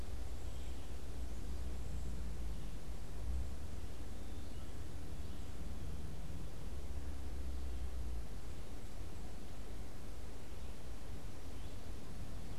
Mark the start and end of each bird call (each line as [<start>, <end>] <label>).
[0.00, 1.02] Cedar Waxwing (Bombycilla cedrorum)
[0.00, 4.92] Red-eyed Vireo (Vireo olivaceus)